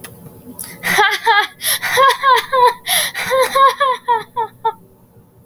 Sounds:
Laughter